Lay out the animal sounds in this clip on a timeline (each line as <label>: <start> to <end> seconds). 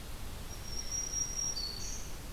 Black-throated Green Warbler (Setophaga virens): 0.3 to 2.3 seconds